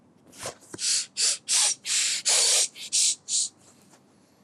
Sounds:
Sniff